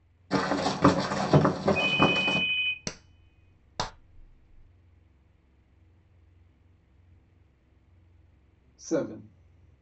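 First, someone runs. While that goes on, a ringtone can be heard. Then a person claps. Finally, a voice says "seven." A soft background noise sits about 35 dB below the sounds.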